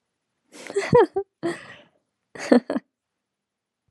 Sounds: Laughter